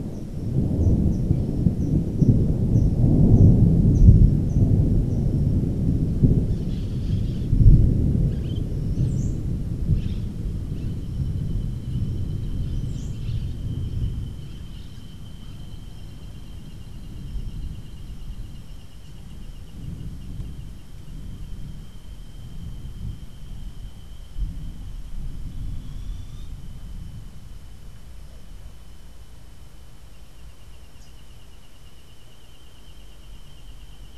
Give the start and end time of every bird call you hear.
[0.00, 5.50] Rufous-capped Warbler (Basileuterus rufifrons)
[6.50, 15.40] Orange-fronted Parakeet (Eupsittula canicularis)
[9.00, 9.60] Cabanis's Wren (Cantorchilus modestus)
[25.80, 26.60] Boat-billed Flycatcher (Megarynchus pitangua)
[30.90, 31.20] Rufous-capped Warbler (Basileuterus rufifrons)

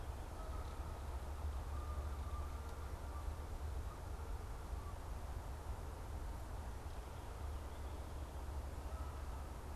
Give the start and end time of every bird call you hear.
[0.00, 5.82] Canada Goose (Branta canadensis)

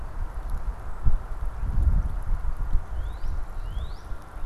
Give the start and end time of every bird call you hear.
[2.70, 4.40] Northern Cardinal (Cardinalis cardinalis)

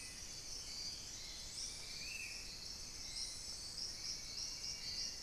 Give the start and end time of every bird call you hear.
[0.00, 1.19] Hauxwell's Thrush (Turdus hauxwelli)
[0.00, 2.38] Dusky-throated Antshrike (Thamnomanes ardesiacus)
[0.00, 5.22] Spot-winged Antshrike (Pygiptila stellaris)

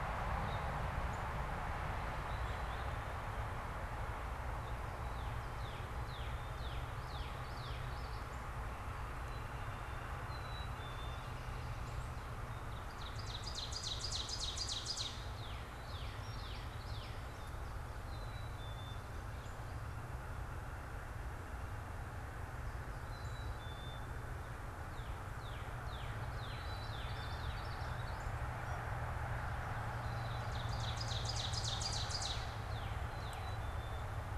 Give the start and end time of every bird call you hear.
[0.30, 0.80] Purple Finch (Haemorhous purpureus)
[1.10, 1.20] Northern Cardinal (Cardinalis cardinalis)
[2.20, 3.00] Purple Finch (Haemorhous purpureus)
[4.40, 9.60] Northern Cardinal (Cardinalis cardinalis)
[5.90, 6.70] Black-capped Chickadee (Poecile atricapillus)
[9.10, 9.70] Black-capped Chickadee (Poecile atricapillus)
[10.10, 11.40] Black-capped Chickadee (Poecile atricapillus)
[11.60, 15.20] Ovenbird (Seiurus aurocapilla)
[14.80, 17.30] Northern Cardinal (Cardinalis cardinalis)
[17.80, 19.10] Black-capped Chickadee (Poecile atricapillus)
[23.00, 24.20] Black-capped Chickadee (Poecile atricapillus)
[24.80, 27.80] Northern Cardinal (Cardinalis cardinalis)
[26.40, 28.30] Common Yellowthroat (Geothlypis trichas)
[28.60, 28.80] unidentified bird
[29.90, 32.50] Ovenbird (Seiurus aurocapilla)
[30.90, 33.60] Northern Cardinal (Cardinalis cardinalis)
[33.40, 34.10] Black-capped Chickadee (Poecile atricapillus)

